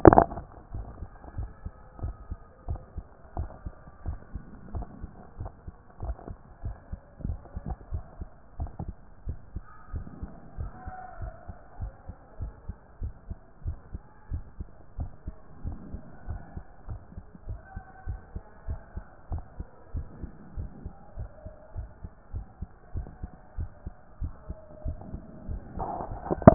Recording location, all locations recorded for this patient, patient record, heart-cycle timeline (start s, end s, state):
mitral valve (MV)
aortic valve (AV)+pulmonary valve (PV)+tricuspid valve (TV)+mitral valve (MV)
#Age: nan
#Sex: Female
#Height: nan
#Weight: nan
#Pregnancy status: True
#Murmur: Absent
#Murmur locations: nan
#Most audible location: nan
#Systolic murmur timing: nan
#Systolic murmur shape: nan
#Systolic murmur grading: nan
#Systolic murmur pitch: nan
#Systolic murmur quality: nan
#Diastolic murmur timing: nan
#Diastolic murmur shape: nan
#Diastolic murmur grading: nan
#Diastolic murmur pitch: nan
#Diastolic murmur quality: nan
#Outcome: Abnormal
#Campaign: 2014 screening campaign
0.00	7.79	unannotated
7.79	7.92	diastole
7.92	8.04	S1
8.04	8.20	systole
8.20	8.28	S2
8.28	8.58	diastole
8.58	8.70	S1
8.70	8.84	systole
8.84	8.94	S2
8.94	9.26	diastole
9.26	9.38	S1
9.38	9.54	systole
9.54	9.64	S2
9.64	9.92	diastole
9.92	10.06	S1
10.06	10.20	systole
10.20	10.30	S2
10.30	10.58	diastole
10.58	10.72	S1
10.72	10.86	systole
10.86	10.94	S2
10.94	11.20	diastole
11.20	11.32	S1
11.32	11.48	systole
11.48	11.56	S2
11.56	11.80	diastole
11.80	11.92	S1
11.92	12.08	systole
12.08	12.16	S2
12.16	12.40	diastole
12.40	12.52	S1
12.52	12.68	systole
12.68	12.76	S2
12.76	13.00	diastole
13.00	13.14	S1
13.14	13.28	systole
13.28	13.38	S2
13.38	13.64	diastole
13.64	13.78	S1
13.78	13.92	systole
13.92	14.02	S2
14.02	14.30	diastole
14.30	14.44	S1
14.44	14.58	systole
14.58	14.68	S2
14.68	14.98	diastole
14.98	15.10	S1
15.10	15.26	systole
15.26	15.34	S2
15.34	15.64	diastole
15.64	15.78	S1
15.78	15.92	systole
15.92	16.02	S2
16.02	16.28	diastole
16.28	16.40	S1
16.40	16.56	systole
16.56	16.64	S2
16.64	16.88	diastole
16.88	17.00	S1
17.00	17.16	systole
17.16	17.24	S2
17.24	17.48	diastole
17.48	17.60	S1
17.60	17.74	systole
17.74	17.84	S2
17.84	18.06	diastole
18.06	18.20	S1
18.20	18.34	systole
18.34	18.42	S2
18.42	18.68	diastole
18.68	18.80	S1
18.80	18.96	systole
18.96	19.04	S2
19.04	19.30	diastole
19.30	19.44	S1
19.44	19.58	systole
19.58	19.66	S2
19.66	19.94	diastole
19.94	20.06	S1
20.06	20.22	systole
20.22	20.30	S2
20.30	20.56	diastole
20.56	20.70	S1
20.70	20.84	systole
20.84	20.94	S2
20.94	21.18	diastole
21.18	21.30	S1
21.30	21.44	systole
21.44	21.54	S2
21.54	21.76	diastole
21.76	21.88	S1
21.88	22.02	systole
22.02	22.10	S2
22.10	22.34	diastole
22.34	22.46	S1
22.46	22.60	systole
22.60	22.68	S2
22.68	22.94	diastole
22.94	23.08	S1
23.08	23.22	systole
23.22	23.30	S2
23.30	23.58	diastole
23.58	23.70	S1
23.70	23.86	systole
23.86	23.94	S2
23.94	24.20	diastole
24.20	24.34	S1
24.34	24.48	systole
24.48	24.58	S2
24.58	24.86	diastole
24.86	24.98	S1
24.98	25.12	systole
25.12	25.20	S2
25.20	25.48	diastole
25.48	26.54	unannotated